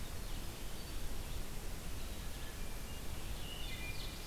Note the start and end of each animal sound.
[0.00, 4.26] Red-eyed Vireo (Vireo olivaceus)
[0.02, 1.38] Black-throated Green Warbler (Setophaga virens)
[2.82, 4.13] Wood Thrush (Hylocichla mustelina)
[3.68, 4.26] Ovenbird (Seiurus aurocapilla)

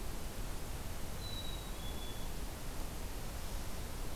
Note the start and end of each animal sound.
[1.00, 2.35] Black-capped Chickadee (Poecile atricapillus)

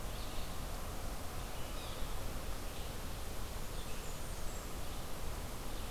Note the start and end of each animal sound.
[0.00, 5.90] Red-eyed Vireo (Vireo olivaceus)
[1.68, 2.05] Yellow-bellied Sapsucker (Sphyrapicus varius)
[3.38, 4.71] Blackburnian Warbler (Setophaga fusca)

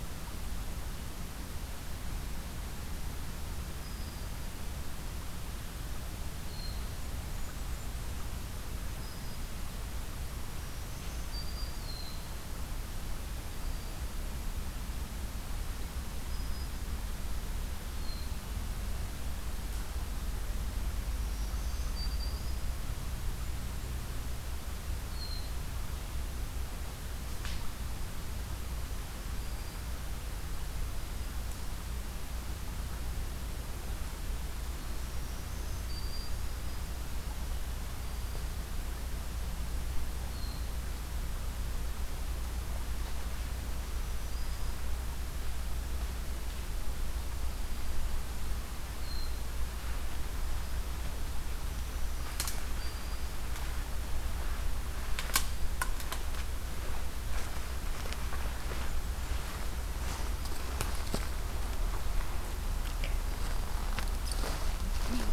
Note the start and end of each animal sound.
[3.66, 4.42] Black-throated Green Warbler (Setophaga virens)
[6.25, 6.87] Hermit Thrush (Catharus guttatus)
[6.96, 8.24] Blackburnian Warbler (Setophaga fusca)
[8.77, 9.53] Black-throated Green Warbler (Setophaga virens)
[10.43, 12.59] Black-throated Green Warbler (Setophaga virens)
[11.63, 12.28] Hermit Thrush (Catharus guttatus)
[13.40, 14.06] Black-throated Green Warbler (Setophaga virens)
[16.17, 16.95] Black-throated Green Warbler (Setophaga virens)
[17.90, 18.39] Hermit Thrush (Catharus guttatus)
[20.96, 22.83] Black-throated Green Warbler (Setophaga virens)
[24.99, 25.55] Hermit Thrush (Catharus guttatus)
[29.12, 29.90] Black-throated Green Warbler (Setophaga virens)
[30.74, 31.47] Black-throated Green Warbler (Setophaga virens)
[34.78, 36.55] Black-throated Green Warbler (Setophaga virens)
[37.79, 38.76] Black-throated Green Warbler (Setophaga virens)
[40.30, 40.79] Hermit Thrush (Catharus guttatus)
[43.66, 44.86] Black-throated Green Warbler (Setophaga virens)
[48.92, 49.47] Hermit Thrush (Catharus guttatus)
[51.48, 53.45] Black-throated Green Warbler (Setophaga virens)

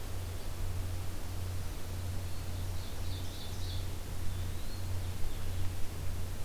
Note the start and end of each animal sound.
[1.62, 2.75] Black-throated Green Warbler (Setophaga virens)
[2.14, 4.03] Ovenbird (Seiurus aurocapilla)
[4.11, 4.98] Eastern Wood-Pewee (Contopus virens)
[4.89, 6.45] Blue-headed Vireo (Vireo solitarius)

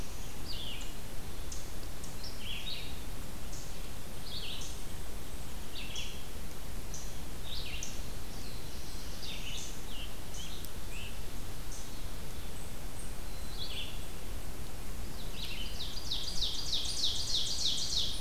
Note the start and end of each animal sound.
[0.00, 1.10] Red-eyed Vireo (Vireo olivaceus)
[0.00, 18.20] Eastern Chipmunk (Tamias striatus)
[2.14, 18.20] Red-eyed Vireo (Vireo olivaceus)
[8.05, 9.89] Black-throated Blue Warbler (Setophaga caerulescens)
[9.35, 11.49] Scarlet Tanager (Piranga olivacea)
[13.08, 14.05] Black-capped Chickadee (Poecile atricapillus)
[15.16, 18.20] Ovenbird (Seiurus aurocapilla)

